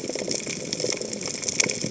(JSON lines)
{"label": "biophony", "recorder": "HydroMoth"}